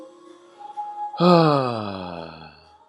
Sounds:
Sigh